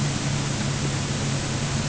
{"label": "anthrophony, boat engine", "recorder": "HydroMoth"}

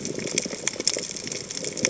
{"label": "biophony", "recorder": "HydroMoth"}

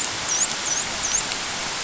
{"label": "biophony, dolphin", "recorder": "SoundTrap 500"}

